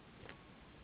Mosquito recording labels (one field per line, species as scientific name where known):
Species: Anopheles gambiae s.s.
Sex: female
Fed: unfed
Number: one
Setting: insect culture